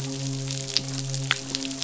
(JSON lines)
{"label": "biophony, midshipman", "recorder": "SoundTrap 500"}